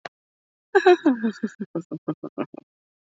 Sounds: Laughter